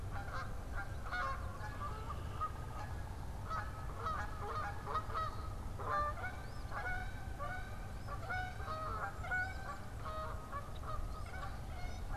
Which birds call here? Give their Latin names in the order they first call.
Branta canadensis, Sayornis phoebe